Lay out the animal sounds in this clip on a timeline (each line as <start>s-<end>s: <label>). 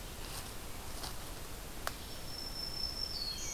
0.0s-3.5s: Red-eyed Vireo (Vireo olivaceus)
1.9s-3.5s: Black-throated Green Warbler (Setophaga virens)